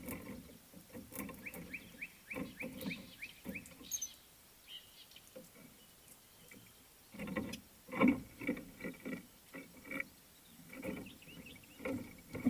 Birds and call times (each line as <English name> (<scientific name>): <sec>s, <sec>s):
Slate-colored Boubou (Laniarius funebris): 2.6s
Somali Tit (Melaniparus thruppi): 3.9s